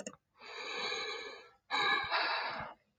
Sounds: Sigh